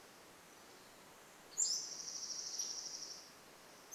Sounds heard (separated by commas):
Pacific-slope Flycatcher song, Dark-eyed Junco song